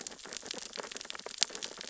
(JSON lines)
{"label": "biophony, sea urchins (Echinidae)", "recorder": "SoundTrap 600 or HydroMoth"}